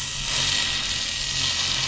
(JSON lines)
{"label": "anthrophony, boat engine", "recorder": "SoundTrap 500"}